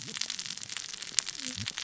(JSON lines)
{"label": "biophony, cascading saw", "recorder": "SoundTrap 600 or HydroMoth"}